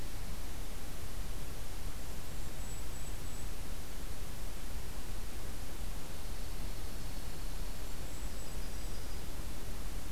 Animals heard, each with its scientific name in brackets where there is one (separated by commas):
Dark-eyed Junco (Junco hyemalis), Golden-crowned Kinglet (Regulus satrapa), Yellow-rumped Warbler (Setophaga coronata)